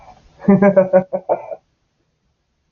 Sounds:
Laughter